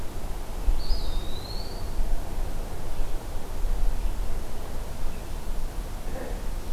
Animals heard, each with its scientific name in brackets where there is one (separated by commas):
Eastern Wood-Pewee (Contopus virens)